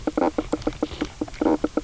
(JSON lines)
{"label": "biophony, knock croak", "recorder": "SoundTrap 300"}